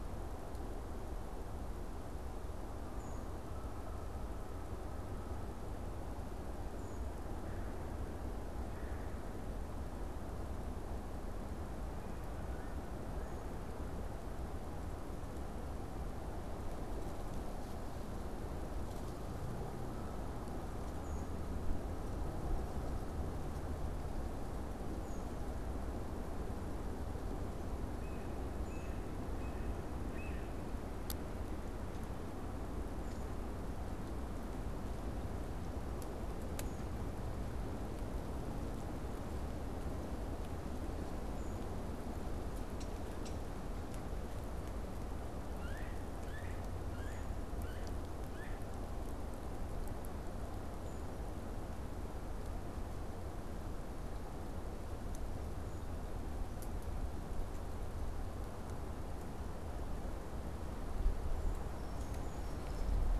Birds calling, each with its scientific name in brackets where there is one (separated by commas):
Yellow-bellied Sapsucker (Sphyrapicus varius), Brown Creeper (Certhia americana)